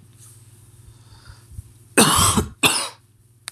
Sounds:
Cough